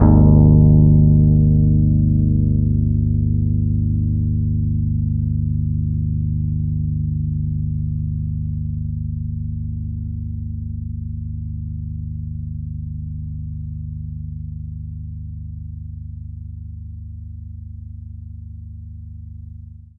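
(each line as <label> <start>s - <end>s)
A guitar plays a single note that gradually decreases. 0.0s - 10.3s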